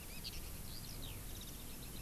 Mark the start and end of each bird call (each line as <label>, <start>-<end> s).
Eurasian Skylark (Alauda arvensis), 0.0-2.0 s